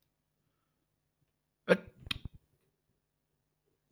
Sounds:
Sneeze